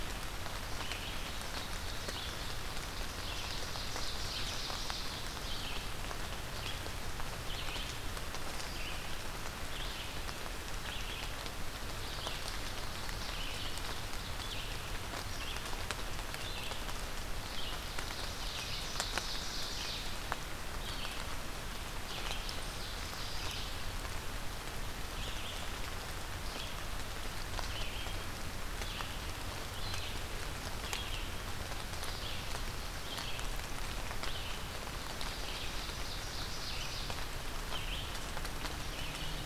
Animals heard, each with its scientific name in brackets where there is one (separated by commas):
Red-eyed Vireo (Vireo olivaceus), Ovenbird (Seiurus aurocapilla)